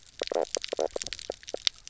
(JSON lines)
{"label": "biophony, knock croak", "recorder": "SoundTrap 300"}